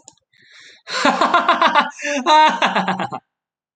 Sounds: Laughter